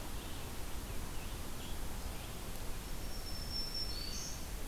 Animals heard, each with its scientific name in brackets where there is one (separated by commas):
Black-throated Green Warbler (Setophaga virens), Scarlet Tanager (Piranga olivacea)